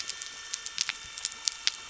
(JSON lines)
{"label": "anthrophony, boat engine", "recorder": "SoundTrap 300"}